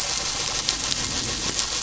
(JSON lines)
{"label": "anthrophony, boat engine", "recorder": "SoundTrap 500"}